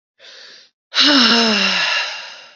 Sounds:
Sigh